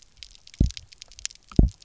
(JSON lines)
{"label": "biophony, double pulse", "recorder": "SoundTrap 300"}